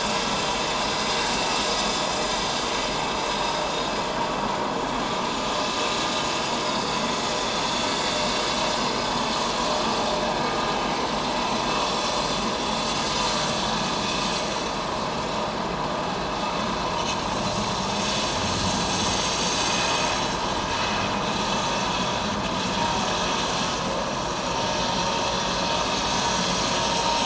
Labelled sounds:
6.7	7.0	vessel noise, 4.4 to 4.6 kHz
11.9	12.1	vessel noise, 5.4 to 5.6 kHz
19.7	19.9	vessel noise, 2.4 to 2.6 kHz

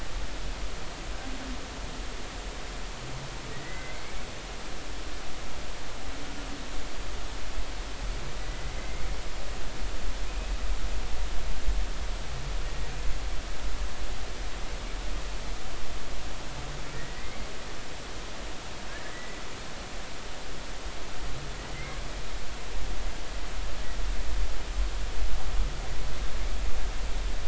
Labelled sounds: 3.5	4.2	humpback whale, 1.8 to 2.3 kHz
8.5	9.0	humpback whale, 1.9 to 2.2 kHz
16.9	17.5	humpback whale, 1.8 to 2.3 kHz
19.1	19.4	humpback whale, 1.9 to 2.0 kHz

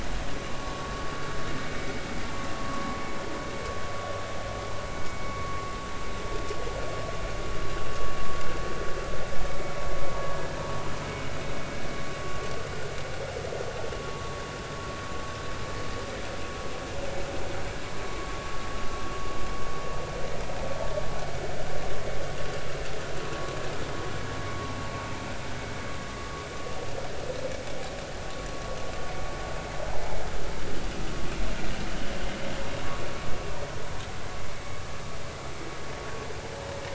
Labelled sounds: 18.1	18.4	vessel noise, 0.96 to 1.2 kHz
29.9	30.2	vessel noise, 0.80 to 1.0 kHz

